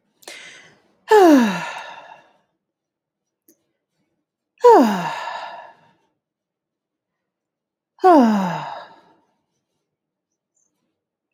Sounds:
Sigh